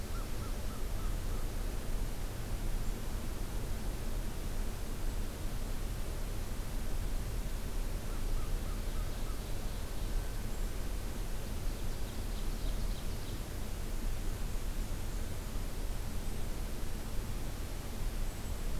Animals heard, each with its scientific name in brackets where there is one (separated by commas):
American Crow (Corvus brachyrhynchos), Ovenbird (Seiurus aurocapilla)